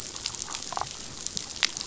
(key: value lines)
label: biophony
recorder: SoundTrap 500